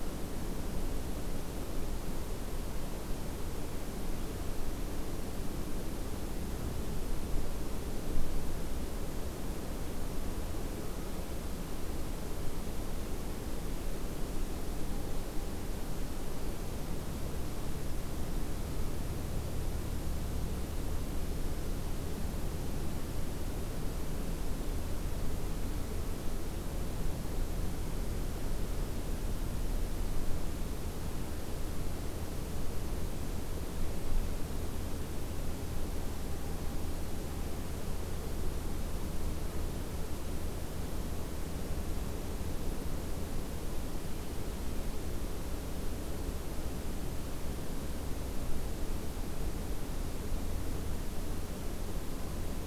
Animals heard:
forest ambience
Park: Acadia National Park